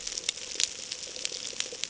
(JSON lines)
{"label": "ambient", "recorder": "HydroMoth"}